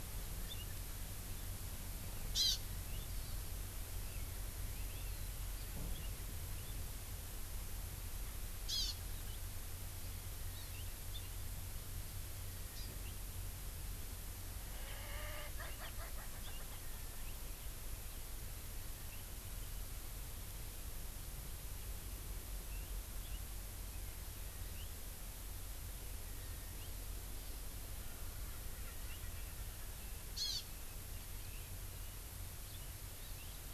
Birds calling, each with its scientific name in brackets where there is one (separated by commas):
Hawaii Amakihi (Chlorodrepanis virens), Erckel's Francolin (Pternistis erckelii)